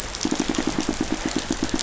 {"label": "biophony, pulse", "recorder": "SoundTrap 500"}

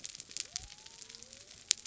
{"label": "biophony", "recorder": "SoundTrap 300"}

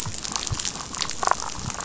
{"label": "biophony, damselfish", "recorder": "SoundTrap 500"}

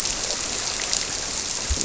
{"label": "biophony", "recorder": "SoundTrap 300"}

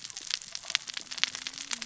{"label": "biophony, cascading saw", "recorder": "SoundTrap 600 or HydroMoth"}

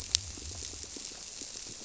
{"label": "biophony", "recorder": "SoundTrap 300"}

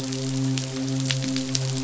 {"label": "biophony, midshipman", "recorder": "SoundTrap 500"}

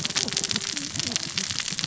{"label": "biophony, cascading saw", "recorder": "SoundTrap 600 or HydroMoth"}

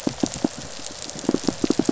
{"label": "biophony, pulse", "recorder": "SoundTrap 500"}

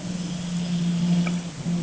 {"label": "anthrophony, boat engine", "recorder": "HydroMoth"}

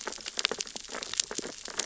{"label": "biophony, sea urchins (Echinidae)", "recorder": "SoundTrap 600 or HydroMoth"}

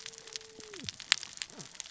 {"label": "biophony, cascading saw", "recorder": "SoundTrap 600 or HydroMoth"}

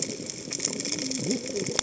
{"label": "biophony, cascading saw", "recorder": "HydroMoth"}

